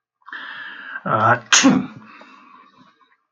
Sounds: Sneeze